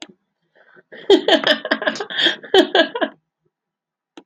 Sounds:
Laughter